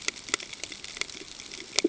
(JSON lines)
{"label": "ambient", "recorder": "HydroMoth"}